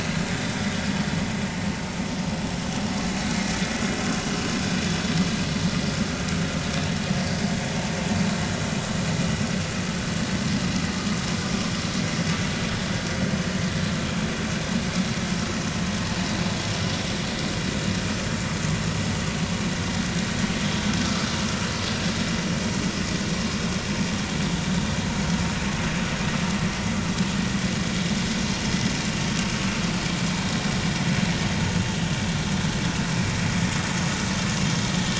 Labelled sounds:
0.3	0.6	vessel noise, 3.5 to 3.8 kHz
5.4	5.7	vessel noise, 4.1 to 4.3 kHz

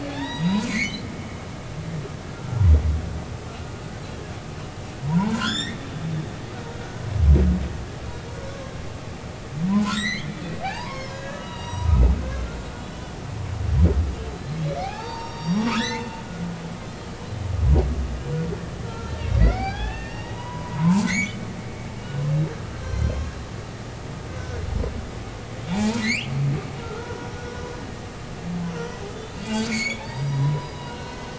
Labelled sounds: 0.1	1.0	humpback whale, 0.80 to 4.9 kHz
2.3	2.7	humpback whale, 1.3 to 1.4 kHz
5.0	5.8	humpback whale, 0.80 to 7.7 kHz
9.7	11.9	humpback whale, 0.80 to 7.8 kHz
14.3	16.1	humpback whale, 0.80 to 6.4 kHz
16.7	17.5	humpback whale, 2.9 to 5.5 kHz
18.8	19.1	humpback whale, 1.3 to 1.4 kHz
19.4	21.4	humpback whale, 0.80 to 4.9 kHz
22.8	23.2	humpback whale, 3.0 to 5.9 kHz
24.3	24.6	humpback whale, 1.4 to 1.6 kHz
25.7	27.6	humpback whale, 0.80 to 3.4 kHz
28.8	31.3	humpback whale, 0.80 to 7.4 kHz

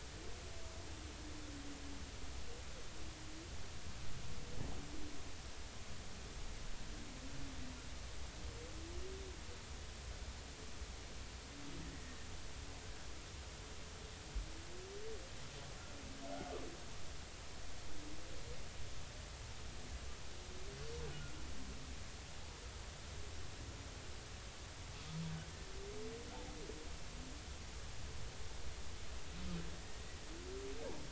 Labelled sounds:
11.9	12.2	humpback whale, 1.7 to 2.0 kHz

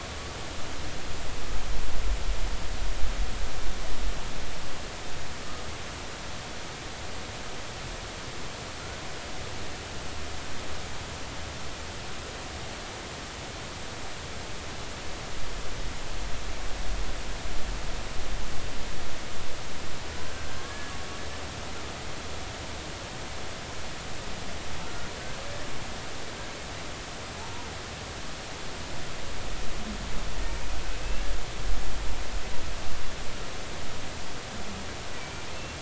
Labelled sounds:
20.3	20.9	humpback whale, 1.5 to 1.8 kHz
24.8	25.4	humpback whale, 1.3 to 1.6 kHz
27.4	27.7	humpback whale, 0.83 to 1.0 kHz
35.2	35.5	humpback whale, 2.2 to 2.4 kHz

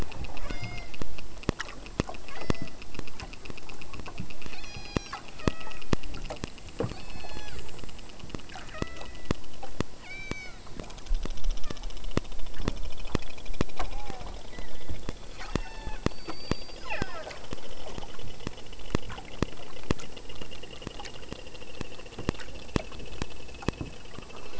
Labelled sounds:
0.4	0.9	killer whale, southern Alaska resident, 0.28 to 6.8 kHz
2.2	2.7	killer whale, southern Alaska resident, 0.15 to 6.3 kHz
4.4	5.9	killer whale, southern Alaska resident, 0.31 to 8.0 kHz
6.9	7.7	killer whale, southern Alaska resident, 0.33 to 6.4 kHz
8.6	9.4	killer whale, southern Alaska resident, 0.36 to 4.1 kHz
10.0	10.7	killer whale, southern Alaska resident, 0.26 to 8.0 kHz
11.6	12.0	killer whale, southern Alaska resident, 0.49 to 2.0 kHz
13.9	15.1	killer whale, southern Alaska resident, 0.39 to 5.4 kHz
15.4	17.5	killer whale, southern Alaska resident, 0.41 to 8.0 kHz

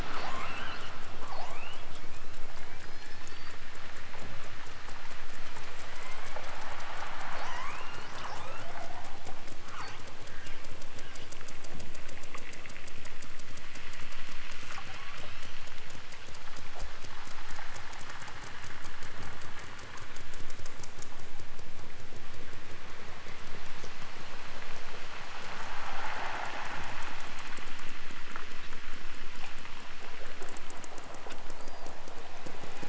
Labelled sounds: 1.8	3.6	killer whale, southern Alaska resident, 0.69 to 6.4 kHz
5.7	6.7	killer whale, southern Alaska resident, 0.37 to 8.0 kHz
7.3	9.3	killer whale, southern Alaska resident, 0.23 to 8.0 kHz
14.8	15.7	killer whale, southern Alaska resident, 0.78 to 6.2 kHz

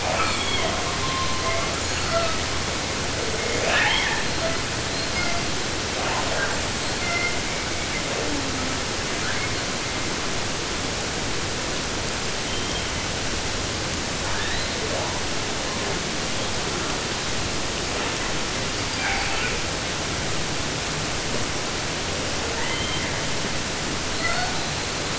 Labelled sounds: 0.0	2.6	killer whale, 0.41 to 8.0 kHz
3.1	4.3	killer whale, southern resident, 0.26 to 8.0 kHz
4.2	5.5	killer whale, southern resident, J pod, call S42, 0.23 to 5.9 kHz
5.9	6.7	killer whale, 0.33 to 4.6 kHz
6.7	7.5	killer whale, southern resident, J pod, call S42, 0.36 to 8.0 kHz
7.4	10.1	killer whale, 0.19 to 5.3 kHz
12.3	13.2	killer whale, 0.97 to 4.1 kHz
14.2	15.2	killer whale, 0.20 to 4.8 kHz
15.6	16.1	killer whale, 0.23 to 2.5 kHz
16.6	17.2	killer whale, 0.13 to 2.0 kHz
17.7	18.4	killer whale, 0.24 to 4.0 kHz
18.7	19.6	killer whale, 0.19 to 4.9 kHz
22.4	23.4	killer whale, southern resident, J pod, call S44, 0.19 to 4.4 kHz
24.0	25.1	killer whale, southern resident, J pod, call S42, 0.27 to 4.8 kHz

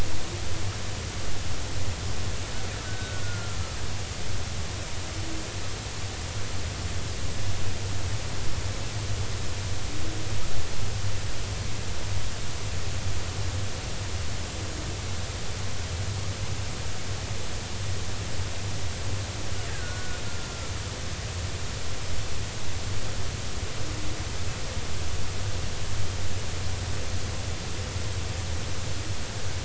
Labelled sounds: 2.9	3.6	killer whale, Bigg's (transient), 1.3 to 1.6 kHz
19.7	20.5	killer whale, Bigg's (transient), 1.4 to 1.7 kHz

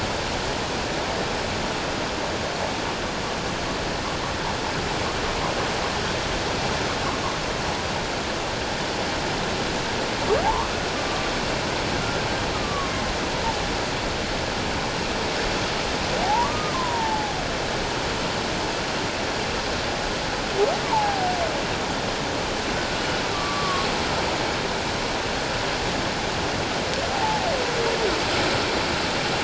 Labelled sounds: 10.4	10.8	humpback whale, 0.78 to 1.3 kHz
12.5	12.9	humpback whale, 1.0 to 1.3 kHz
16.2	17.3	humpback whale, 0.78 to 1.3 kHz
20.9	21.3	humpback whale, 0.78 to 1.0 kHz
23.3	23.9	humpback whale, 1.0 to 1.2 kHz
27.1	27.5	humpback whale, 0.78 to 0.94 kHz

